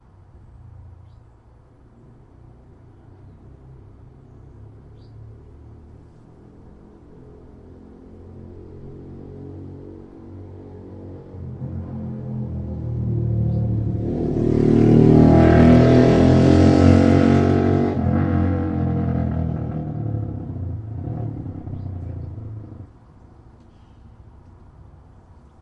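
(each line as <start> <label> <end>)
0.0 A muffled distant noise from the street. 7.5
4.8 A bird chirps with street noise in the background. 5.3
7.5 A muffled motorcycle slowly approaches on a winding road and then moves away. 22.9
13.3 Motorcycle and street noise in the foreground while a bird chirps in the background. 13.7
21.5 Motorcycle and street noise in the foreground while a bird chirps in the background. 22.2
22.9 A muffled noise from the distant street with whispering wind. 25.6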